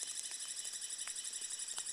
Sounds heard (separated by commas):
rain, Red-breasted Nuthatch song, Douglas squirrel rattle